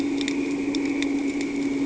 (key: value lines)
label: anthrophony, boat engine
recorder: HydroMoth